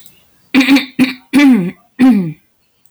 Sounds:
Throat clearing